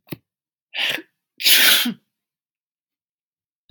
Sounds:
Sneeze